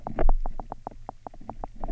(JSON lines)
{"label": "biophony, knock", "recorder": "SoundTrap 300"}